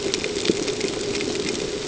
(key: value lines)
label: ambient
recorder: HydroMoth